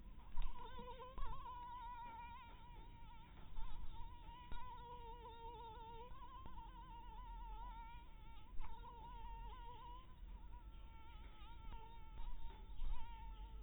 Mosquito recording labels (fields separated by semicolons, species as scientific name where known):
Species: mosquito; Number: one; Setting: cup